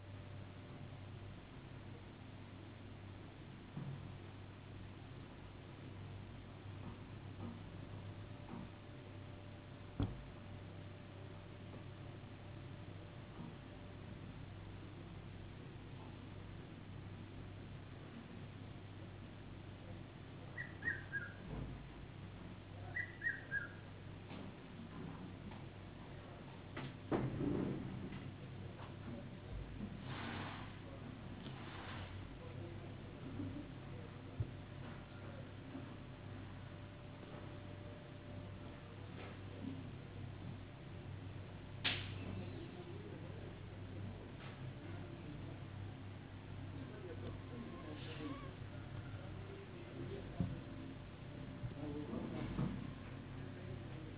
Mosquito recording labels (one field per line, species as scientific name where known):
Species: no mosquito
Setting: insect culture